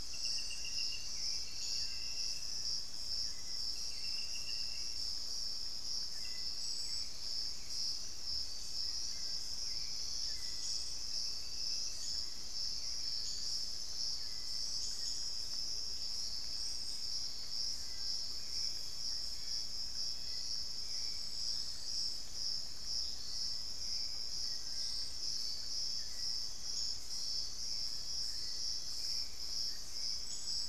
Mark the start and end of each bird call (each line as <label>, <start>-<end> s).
Hauxwell's Thrush (Turdus hauxwelli), 0.0-30.7 s
Little Tinamou (Crypturellus soui), 1.4-2.7 s
Amazonian Motmot (Momotus momota), 15.1-16.1 s
Little Tinamou (Crypturellus soui), 17.6-30.7 s